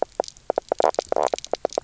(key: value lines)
label: biophony, knock croak
recorder: SoundTrap 300